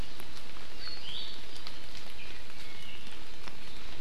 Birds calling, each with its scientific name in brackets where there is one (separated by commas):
Iiwi (Drepanis coccinea)